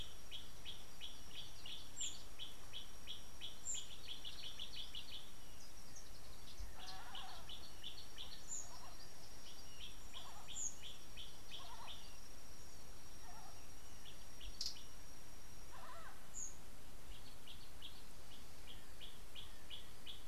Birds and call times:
Gray Apalis (Apalis cinerea): 0:01.6, 0:11.1, 0:19.7
Kikuyu White-eye (Zosterops kikuyuensis): 0:09.7

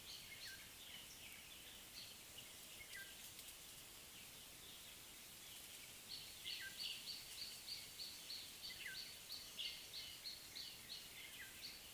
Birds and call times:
Black-tailed Oriole (Oriolus percivali): 0:03.0
Gray Apalis (Apalis cinerea): 0:10.1

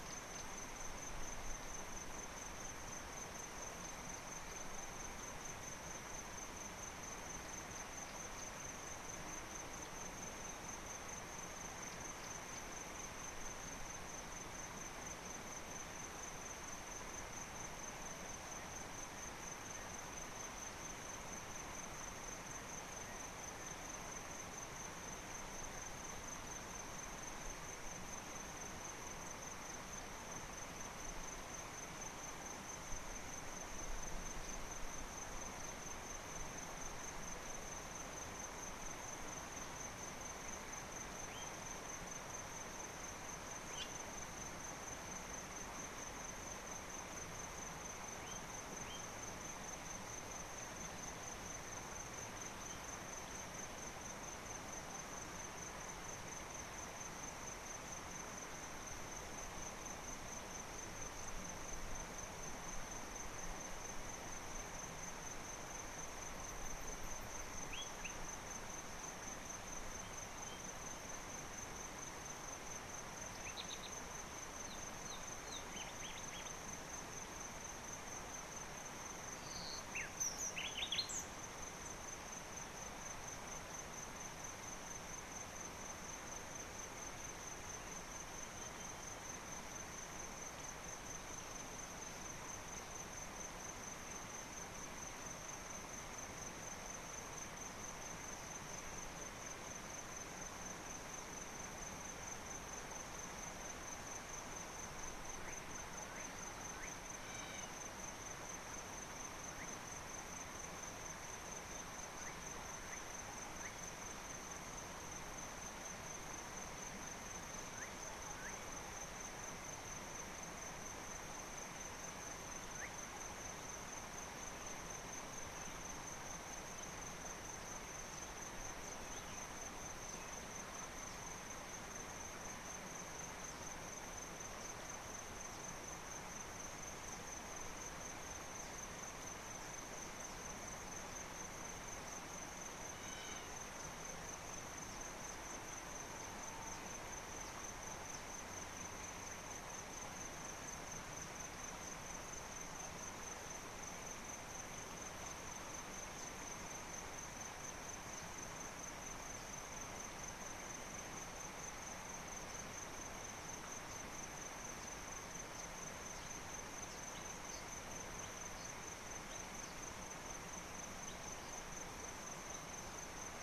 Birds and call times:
Slate-colored Boubou (Laniarius funebris): 1:07.8, 1:46.8, 1:58.4
Hamerkop (Scopus umbretta): 1:47.5

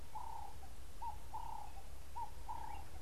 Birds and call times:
Ring-necked Dove (Streptopelia capicola): 0:01.5

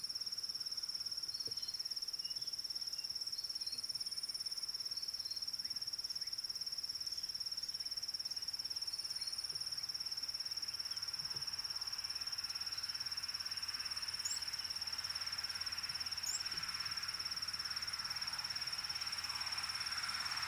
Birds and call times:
Red-backed Scrub-Robin (Cercotrichas leucophrys): 0:01.5, 0:03.6, 0:09.2

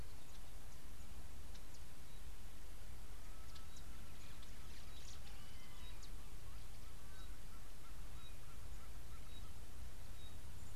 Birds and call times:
Pygmy Batis (Batis perkeo): 0:09.3

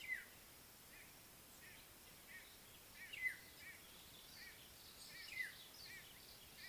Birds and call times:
White-bellied Go-away-bird (Corythaixoides leucogaster): 0:03.6
African Black-headed Oriole (Oriolus larvatus): 0:05.4

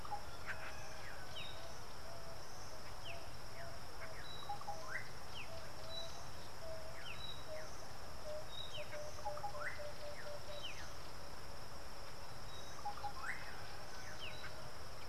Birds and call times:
Emerald-spotted Wood-Dove (Turtur chalcospilos): 0:06.7

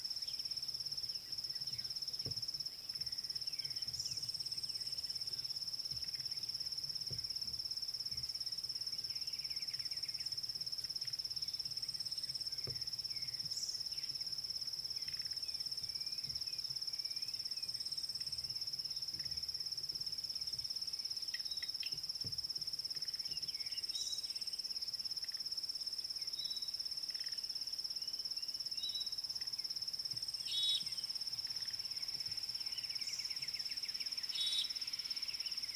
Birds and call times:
African Bare-eyed Thrush (Turdus tephronotus): 0:09.6
Klaas's Cuckoo (Chrysococcyx klaas): 0:16.0
Fork-tailed Drongo (Dicrurus adsimilis): 0:30.7, 0:34.6

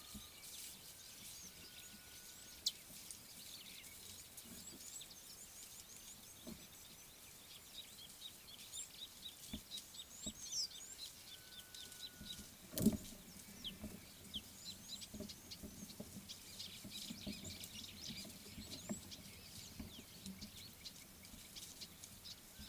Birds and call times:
Scarlet-chested Sunbird (Chalcomitra senegalensis): 0:02.7, 0:11.0
Red-billed Firefinch (Lagonosticta senegala): 0:15.3, 0:20.8
White-browed Sparrow-Weaver (Plocepasser mahali): 0:17.3

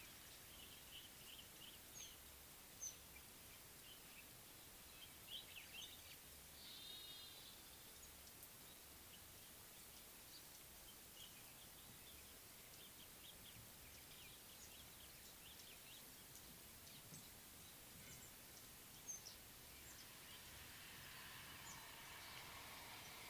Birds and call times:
Common Bulbul (Pycnonotus barbatus): 0:05.4

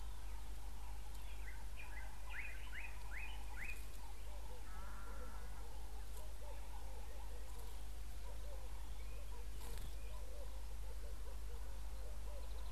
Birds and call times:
Slate-colored Boubou (Laniarius funebris): 0:03.2
Red-eyed Dove (Streptopelia semitorquata): 0:06.5

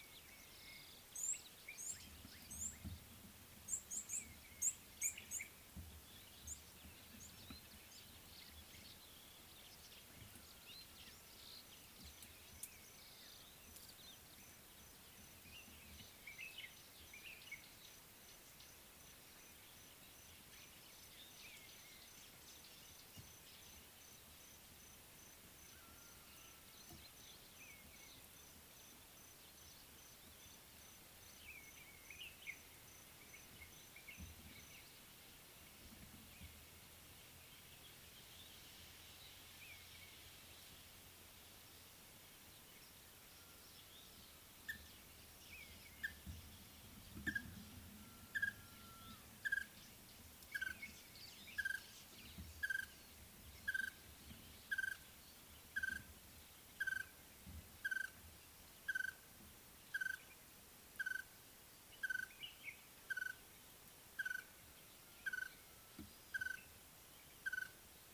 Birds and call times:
Red-cheeked Cordonbleu (Uraeginthus bengalus): 0:01.8
Common Bulbul (Pycnonotus barbatus): 0:16.4, 1:02.4
Red-fronted Tinkerbird (Pogoniulus pusillus): 0:49.5, 1:00.0

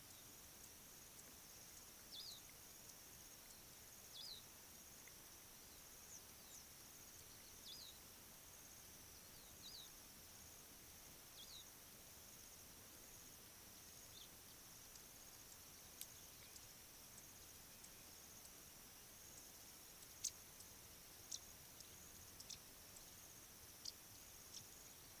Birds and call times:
African Pipit (Anthus cinnamomeus): 0:04.3, 0:11.5

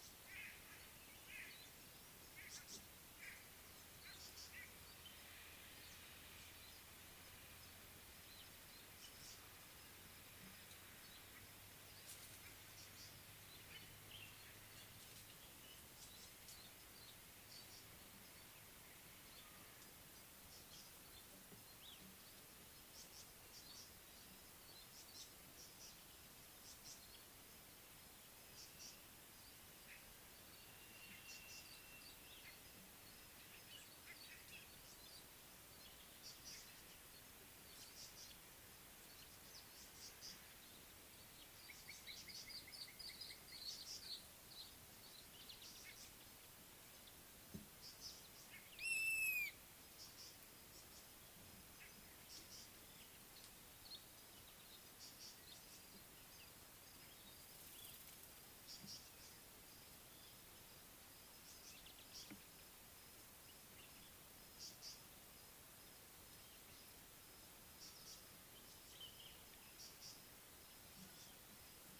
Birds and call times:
Tawny-flanked Prinia (Prinia subflava): 0:02.6, 0:23.6, 0:28.6, 0:38.2, 0:50.1, 0:52.4, 0:58.8, 1:04.9, 1:10.0
Slate-colored Boubou (Laniarius funebris): 0:41.9
Little Bee-eater (Merops pusillus): 0:43.0, 0:53.9
Long-crested Eagle (Lophaetus occipitalis): 0:49.1
Common Bulbul (Pycnonotus barbatus): 1:09.1

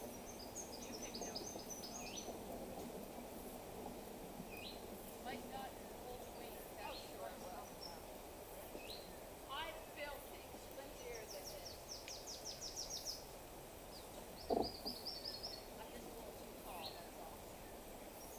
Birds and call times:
Brown Woodland-Warbler (Phylloscopus umbrovirens): 0:01.2

